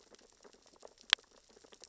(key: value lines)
label: biophony, sea urchins (Echinidae)
recorder: SoundTrap 600 or HydroMoth